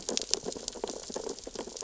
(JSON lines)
{"label": "biophony, sea urchins (Echinidae)", "recorder": "SoundTrap 600 or HydroMoth"}